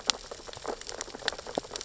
{"label": "biophony, sea urchins (Echinidae)", "recorder": "SoundTrap 600 or HydroMoth"}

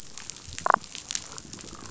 {"label": "biophony", "recorder": "SoundTrap 500"}
{"label": "biophony, damselfish", "recorder": "SoundTrap 500"}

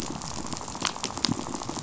{"label": "biophony, rattle", "recorder": "SoundTrap 500"}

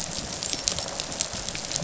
{"label": "biophony, rattle response", "recorder": "SoundTrap 500"}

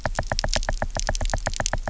{"label": "biophony, knock", "recorder": "SoundTrap 300"}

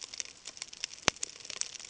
{"label": "ambient", "recorder": "HydroMoth"}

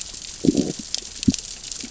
{"label": "biophony, growl", "recorder": "SoundTrap 600 or HydroMoth"}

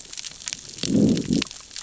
{"label": "biophony, growl", "recorder": "SoundTrap 600 or HydroMoth"}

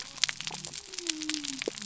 {"label": "biophony", "recorder": "SoundTrap 300"}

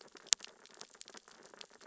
{"label": "biophony, sea urchins (Echinidae)", "recorder": "SoundTrap 600 or HydroMoth"}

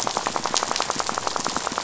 {"label": "biophony, rattle", "recorder": "SoundTrap 500"}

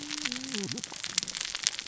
{"label": "biophony, cascading saw", "recorder": "SoundTrap 600 or HydroMoth"}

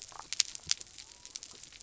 {"label": "biophony", "recorder": "SoundTrap 300"}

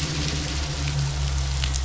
{"label": "anthrophony, boat engine", "recorder": "SoundTrap 500"}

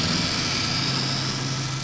{"label": "anthrophony, boat engine", "recorder": "SoundTrap 500"}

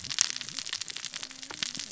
{"label": "biophony, cascading saw", "recorder": "SoundTrap 600 or HydroMoth"}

